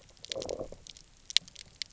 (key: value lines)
label: biophony, low growl
recorder: SoundTrap 300